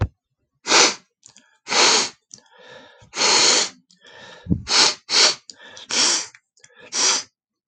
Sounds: Sniff